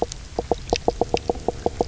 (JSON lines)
{"label": "biophony, knock croak", "recorder": "SoundTrap 300"}